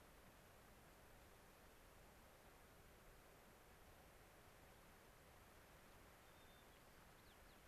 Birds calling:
White-crowned Sparrow (Zonotrichia leucophrys)

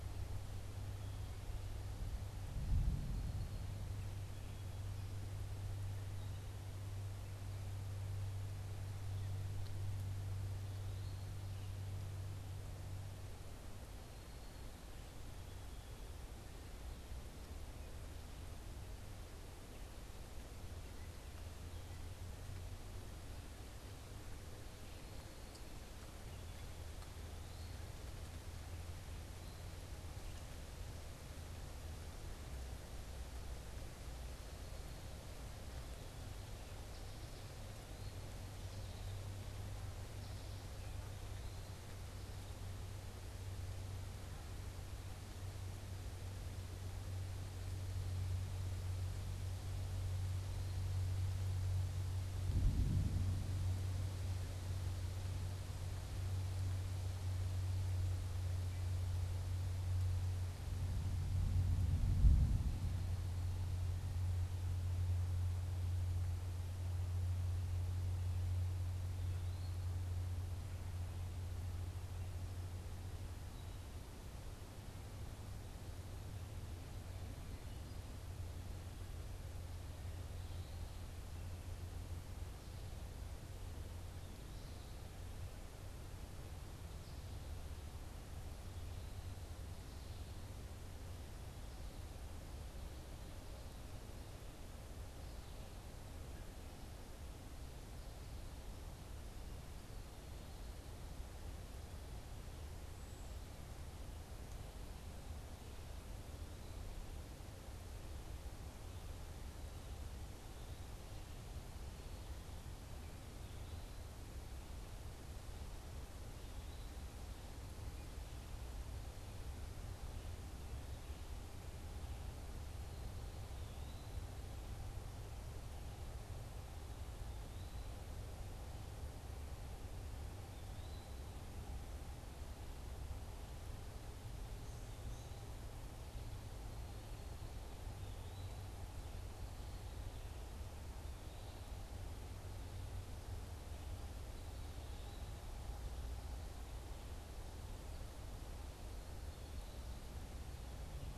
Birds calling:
Eastern Wood-Pewee (Contopus virens)
Song Sparrow (Melospiza melodia)
American Goldfinch (Spinus tristis)

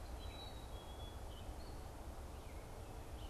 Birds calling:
Black-capped Chickadee (Poecile atricapillus)

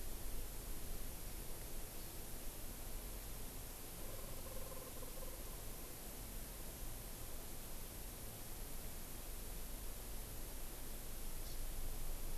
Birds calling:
Hawaii Amakihi (Chlorodrepanis virens)

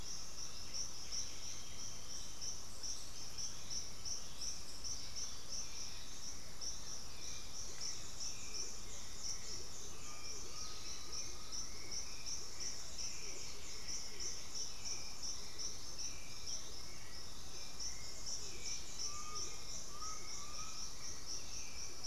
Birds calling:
unidentified bird
Hauxwell's Thrush (Turdus hauxwelli)
Russet-backed Oropendola (Psarocolius angustifrons)
Undulated Tinamou (Crypturellus undulatus)
Chestnut-winged Foliage-gleaner (Dendroma erythroptera)

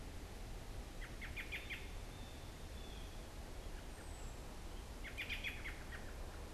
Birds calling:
American Robin (Turdus migratorius)

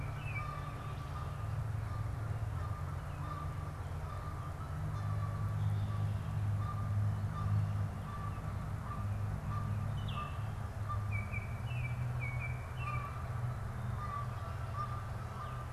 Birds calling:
Canada Goose (Branta canadensis)
Baltimore Oriole (Icterus galbula)

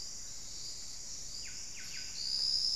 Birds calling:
Buff-breasted Wren (Cantorchilus leucotis)
White-crested Spadebill (Platyrinchus platyrhynchos)

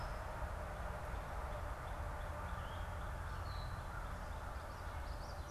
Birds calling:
American Crow (Corvus brachyrhynchos)
Gray Catbird (Dumetella carolinensis)
Common Yellowthroat (Geothlypis trichas)

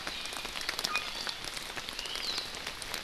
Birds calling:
Iiwi (Drepanis coccinea)
Apapane (Himatione sanguinea)

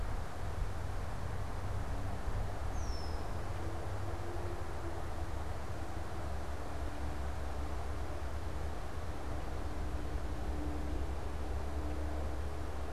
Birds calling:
Red-winged Blackbird (Agelaius phoeniceus)

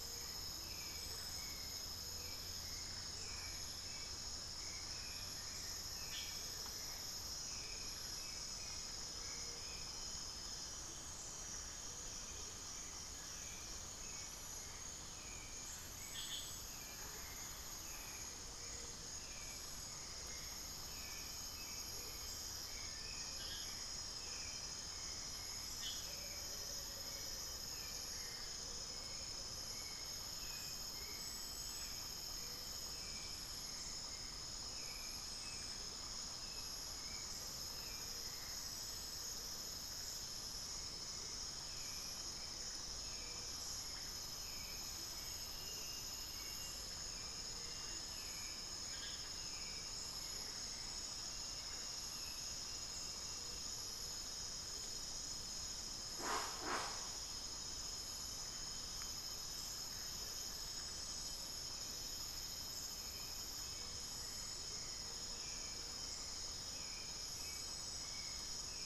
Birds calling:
Gray-fronted Dove (Leptotila rufaxilla)
Black-faced Antthrush (Formicarius analis)
Amazonian Motmot (Momotus momota)
unidentified bird
Spix's Guan (Penelope jacquacu)
Little Tinamou (Crypturellus soui)
Plain-winged Antshrike (Thamnophilus schistaceus)
Hauxwell's Thrush (Turdus hauxwelli)

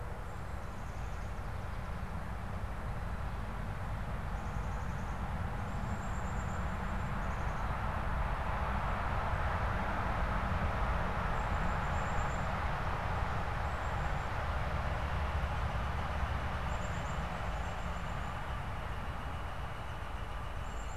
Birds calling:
Black-capped Chickadee (Poecile atricapillus)
Northern Flicker (Colaptes auratus)

